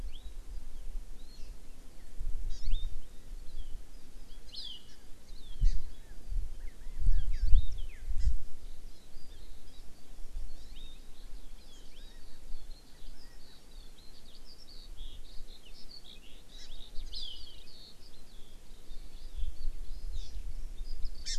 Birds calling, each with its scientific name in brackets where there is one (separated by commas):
Hawaii Amakihi (Chlorodrepanis virens), Chinese Hwamei (Garrulax canorus), Eurasian Skylark (Alauda arvensis)